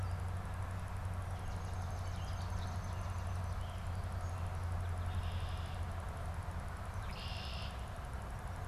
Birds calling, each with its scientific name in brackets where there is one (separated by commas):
Red-winged Blackbird (Agelaius phoeniceus), Swamp Sparrow (Melospiza georgiana)